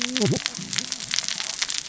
{"label": "biophony, cascading saw", "recorder": "SoundTrap 600 or HydroMoth"}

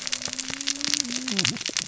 {"label": "biophony, cascading saw", "recorder": "SoundTrap 600 or HydroMoth"}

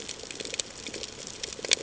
{"label": "ambient", "recorder": "HydroMoth"}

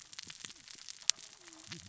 {"label": "biophony, cascading saw", "recorder": "SoundTrap 600 or HydroMoth"}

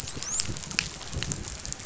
{"label": "biophony, dolphin", "recorder": "SoundTrap 500"}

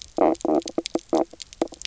{"label": "biophony, knock croak", "recorder": "SoundTrap 300"}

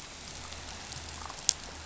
{"label": "biophony", "recorder": "SoundTrap 500"}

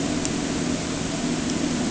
{"label": "anthrophony, boat engine", "recorder": "HydroMoth"}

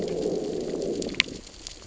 {"label": "biophony, growl", "recorder": "SoundTrap 600 or HydroMoth"}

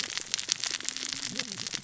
{"label": "biophony, cascading saw", "recorder": "SoundTrap 600 or HydroMoth"}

